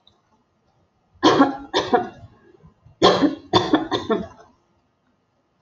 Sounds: Cough